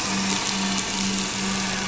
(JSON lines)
{"label": "anthrophony, boat engine", "recorder": "SoundTrap 500"}